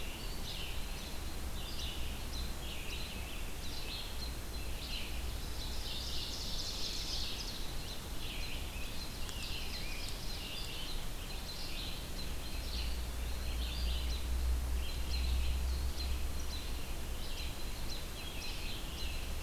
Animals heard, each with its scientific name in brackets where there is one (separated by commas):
Scarlet Tanager (Piranga olivacea), Ovenbird (Seiurus aurocapilla), American Robin (Turdus migratorius), Red-eyed Vireo (Vireo olivaceus)